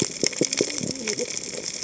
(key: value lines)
label: biophony, cascading saw
recorder: HydroMoth